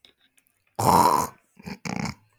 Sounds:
Throat clearing